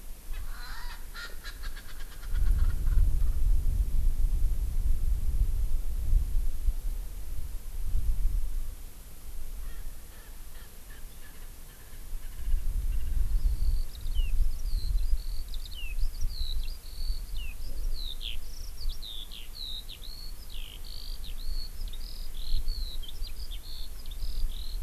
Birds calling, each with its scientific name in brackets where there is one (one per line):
Erckel's Francolin (Pternistis erckelii)
Eurasian Skylark (Alauda arvensis)